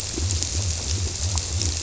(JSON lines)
{"label": "biophony", "recorder": "SoundTrap 300"}